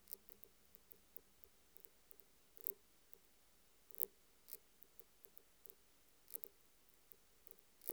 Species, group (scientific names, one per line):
Phaneroptera nana
Orthoptera